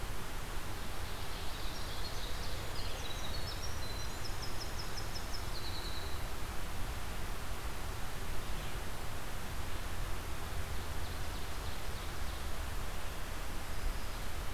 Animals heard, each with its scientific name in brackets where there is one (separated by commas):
Ovenbird (Seiurus aurocapilla), Winter Wren (Troglodytes hiemalis)